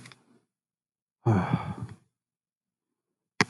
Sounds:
Sigh